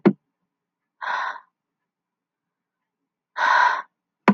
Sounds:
Sigh